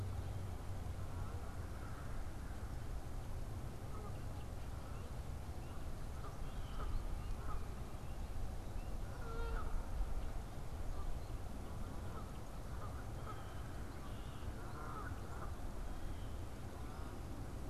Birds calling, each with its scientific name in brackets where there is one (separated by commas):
Canada Goose (Branta canadensis), Blue Jay (Cyanocitta cristata)